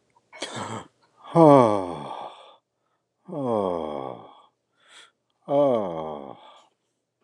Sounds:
Sigh